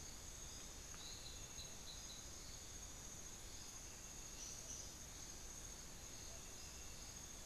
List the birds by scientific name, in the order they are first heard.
unidentified bird